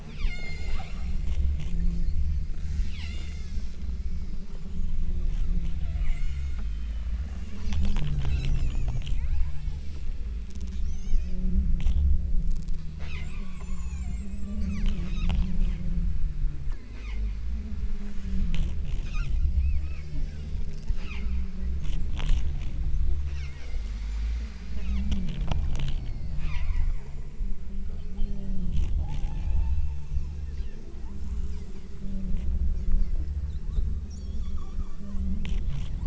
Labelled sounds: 0.0	1.4	killer whale, southern Alaska resident, 0.45 to 8.0 kHz
2.5	4.8	killer whale, southern Alaska resident, 1.2 to 8.0 kHz
5.8	7.0	killer whale, southern Alaska resident, 0.47 to 8.0 kHz
9.2	10.2	killer whale, southern Alaska resident, 0.45 to 8.0 kHz
10.8	11.6	killer whale, southern Alaska resident, 0.91 to 7.5 kHz
13.0	15.2	killer whale, southern Alaska resident, 0.53 to 8.0 kHz
16.9	17.5	killer whale, southern Alaska resident, 0.57 to 8.0 kHz
19.1	21.5	killer whale, southern Alaska resident, 0.64 to 7.1 kHz
23.2	23.8	killer whale, southern Alaska resident, 1.1 to 6.3 kHz
24.8	27.0	killer whale, southern Alaska resident, 0.79 to 7.5 kHz
28.2	30.2	killer whale, southern Alaska resident, 0.62 to 8.0 kHz
31.3	32.2	killer whale, southern Alaska resident, 1.7 to 4.2 kHz
32.7	35.4	killer whale, southern Alaska resident, 0.79 to 8.0 kHz

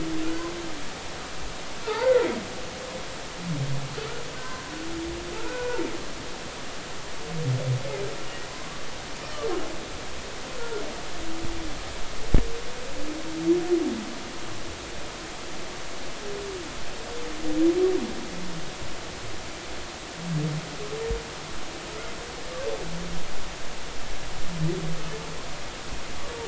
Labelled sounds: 0.2	0.5	humpback whale, 1.3 to 1.6 kHz
1.8	2.4	humpback whale, 0.80 to 2.2 kHz
5.3	5.9	humpback whale, 0.86 to 2.5 kHz

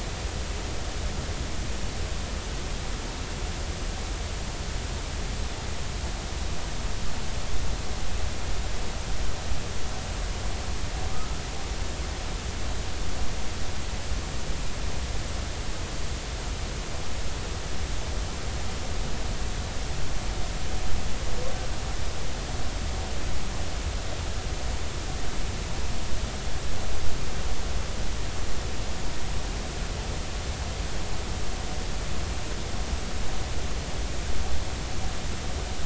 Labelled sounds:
11.1	11.4	humpback whale, 1.2 to 1.4 kHz

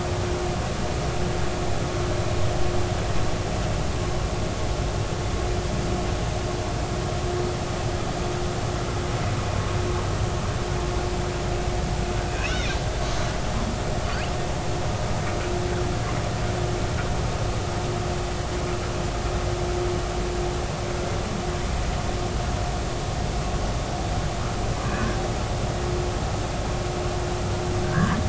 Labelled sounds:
12.3	12.6	humpback whale, 2.4 to 3.1 kHz
12.4	12.7	killer whale, 1.9 to 2.4 kHz
27.8	28.2	humpback whale, 1.5 to 1.8 kHz

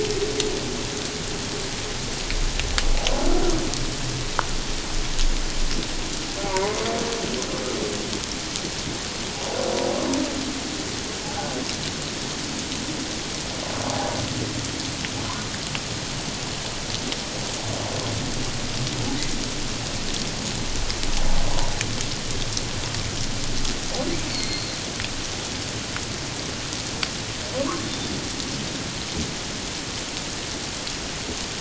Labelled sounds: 6.5	6.9	humpback whale, 0.78 to 1.1 kHz
24.3	24.7	humpback whale, 2.1 to 4.5 kHz

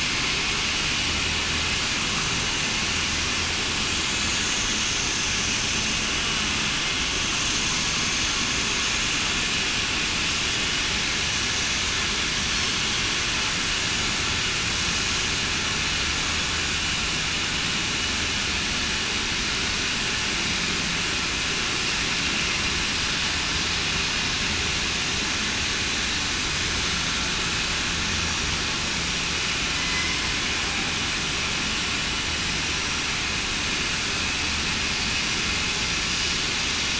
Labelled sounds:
29.7	30.2	killer whale, southern resident, 2.0 to 2.1 kHz

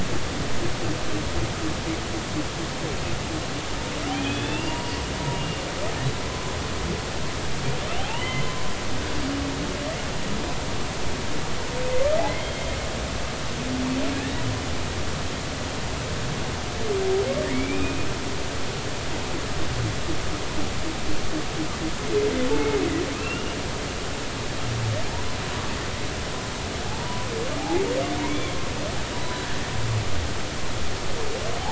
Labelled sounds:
4.1	5.6	humpback whale, 0.90 to 3.6 kHz
8.0	8.6	humpback whale, 0.80 to 3.1 kHz
12.2	12.6	humpback whale, 1.9 to 3.3 kHz
17.5	18.1	humpback whale, 2.1 to 2.6 kHz
23.1	23.6	humpback whale, 2.4 to 2.9 kHz
26.9	27.8	humpback whale, 0.80 to 1.0 kHz
28.2	28.5	humpback whale, 2.1 to 2.4 kHz
29.1	29.5	humpback whale, 3.9 to 4.0 kHz

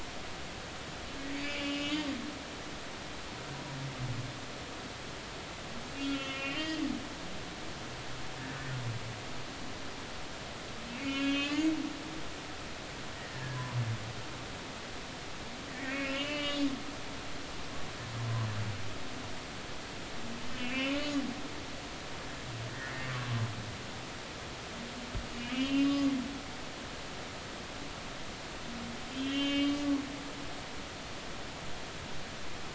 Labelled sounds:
1.3	1.9	humpback whale, 2.2 to 3.2 kHz
6.0	6.8	humpback whale, 1.3 to 3.4 kHz
10.9	11.7	humpback whale, 1.3 to 3.4 kHz
13.1	13.8	humpback whale, 0.93 to 2.0 kHz
15.7	16.7	humpback whale, 1.1 to 3.9 kHz
20.5	20.9	humpback whale, 2.1 to 2.8 kHz
22.9	23.2	humpback whale, 1.8 to 2.1 kHz
25.5	26.1	humpback whale, 1.1 to 5.1 kHz
26.8	27.0	humpback whale, 2.5 to 2.6 kHz
29.1	29.9	humpback whale, 2.1 to 3.4 kHz

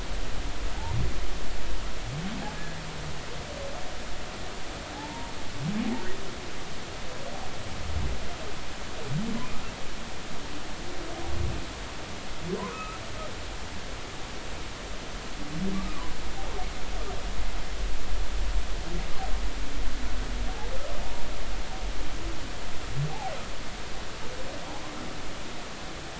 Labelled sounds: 4.9	5.3	humpback whale, 0.80 to 0.99 kHz
12.7	13.0	humpback whale, 1.2 to 1.4 kHz
21.0	21.3	humpback whale, 0.83 to 0.99 kHz

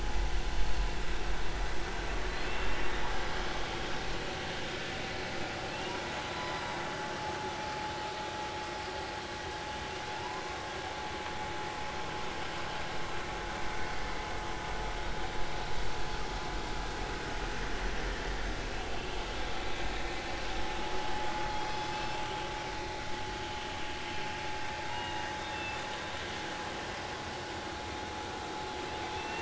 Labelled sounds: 2.4	2.7	humpback whale, 2.5 to 2.8 kHz
5.7	6.6	humpback whale, 0.93 to 3.0 kHz
10.2	10.4	humpback whale, 0.90 to 1.1 kHz
21.7	22.3	humpback whale, 2.6 to 5.4 kHz
24.9	25.9	humpback whale, 0.90 to 3.7 kHz
29.2	29.4	humpback whale, 2.6 to 2.9 kHz

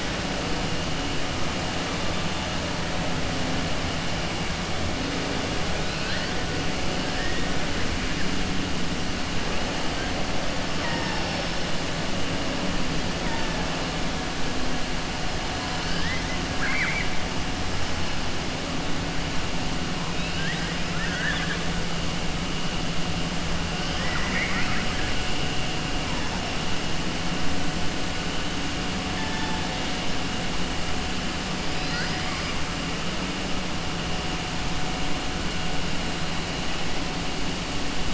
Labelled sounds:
15.7	17.1	killer whale, southern resident, 1.1 to 5.6 kHz
20.1	21.6	killer whale, southern resident, 1.2 to 4.4 kHz
23.8	25.1	killer whale, southern resident, 1.0 to 2.8 kHz
31.8	32.5	killer whale, southern resident, 1.0 to 2.7 kHz

